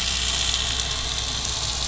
{"label": "anthrophony, boat engine", "recorder": "SoundTrap 500"}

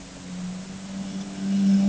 {"label": "anthrophony, boat engine", "recorder": "HydroMoth"}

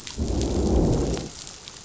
{"label": "biophony, growl", "recorder": "SoundTrap 500"}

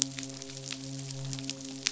{"label": "biophony, midshipman", "recorder": "SoundTrap 500"}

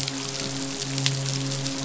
{"label": "biophony, midshipman", "recorder": "SoundTrap 500"}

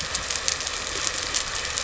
{"label": "anthrophony, boat engine", "recorder": "SoundTrap 300"}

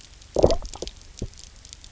{"label": "biophony, low growl", "recorder": "SoundTrap 300"}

